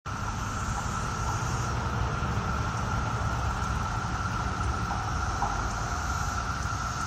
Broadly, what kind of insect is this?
cicada